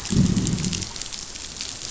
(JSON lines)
{"label": "biophony, growl", "recorder": "SoundTrap 500"}